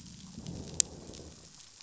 {"label": "biophony, growl", "recorder": "SoundTrap 500"}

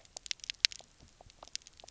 {"label": "biophony, pulse", "recorder": "SoundTrap 300"}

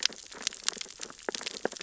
{"label": "biophony, sea urchins (Echinidae)", "recorder": "SoundTrap 600 or HydroMoth"}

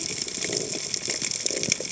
{"label": "biophony", "recorder": "HydroMoth"}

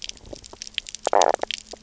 {"label": "biophony, knock croak", "recorder": "SoundTrap 300"}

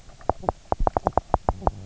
{"label": "biophony, knock croak", "recorder": "SoundTrap 300"}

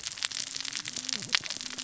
{"label": "biophony, cascading saw", "recorder": "SoundTrap 600 or HydroMoth"}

